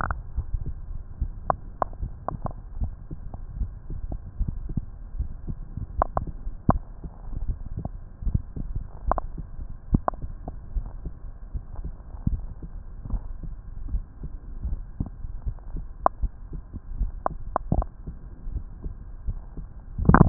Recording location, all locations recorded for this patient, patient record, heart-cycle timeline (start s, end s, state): aortic valve (AV)
aortic valve (AV)+pulmonary valve (PV)+tricuspid valve (TV)+mitral valve (MV)
#Age: nan
#Sex: Female
#Height: nan
#Weight: nan
#Pregnancy status: True
#Murmur: Absent
#Murmur locations: nan
#Most audible location: nan
#Systolic murmur timing: nan
#Systolic murmur shape: nan
#Systolic murmur grading: nan
#Systolic murmur pitch: nan
#Systolic murmur quality: nan
#Diastolic murmur timing: nan
#Diastolic murmur shape: nan
#Diastolic murmur grading: nan
#Diastolic murmur pitch: nan
#Diastolic murmur quality: nan
#Outcome: Normal
#Campaign: 2015 screening campaign
0.00	10.30	unannotated
10.30	10.74	diastole
10.74	10.90	S1
10.90	11.04	systole
11.04	11.14	S2
11.14	11.54	diastole
11.54	11.64	S1
11.64	11.74	systole
11.74	11.86	S2
11.86	12.26	diastole
12.26	12.41	S1
12.41	12.57	systole
12.57	12.80	S2
12.80	13.06	diastole
13.06	13.21	S1
13.21	13.39	systole
13.39	13.53	S2
13.53	13.90	diastole
13.90	14.02	S1
14.02	14.24	systole
14.24	14.39	S2
14.39	14.64	diastole
14.64	14.80	S1
14.80	14.88	systole
14.88	15.04	S2
15.04	15.46	diastole
15.46	15.60	S1
15.60	15.72	systole
15.72	15.86	S2
15.86	16.18	diastole
16.18	16.36	S1
16.36	16.46	systole
16.46	16.63	S2
16.63	16.98	diastole
16.98	17.10	S1
17.10	17.20	systole
17.20	17.44	S2
17.44	17.70	diastole
17.70	17.85	S1
17.85	18.01	systole
18.01	18.15	S2
18.15	18.48	diastole
18.48	18.64	S1
18.64	18.78	systole
18.78	18.99	S2
18.99	19.26	diastole
19.26	19.42	S1
19.42	19.56	systole
19.56	19.66	S2
19.66	19.98	diastole
19.98	20.29	unannotated